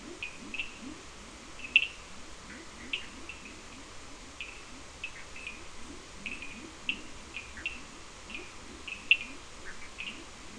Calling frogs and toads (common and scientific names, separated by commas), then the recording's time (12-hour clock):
Leptodactylus latrans, Cochran's lime tree frog (Sphaenorhynchus surdus)
4:00am